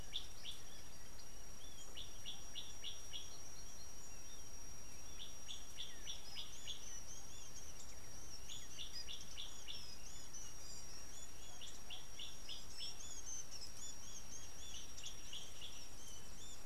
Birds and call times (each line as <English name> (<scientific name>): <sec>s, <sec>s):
Gray Apalis (Apalis cinerea): 2.5s, 12.4s
Kikuyu White-eye (Zosterops kikuyuensis): 10.3s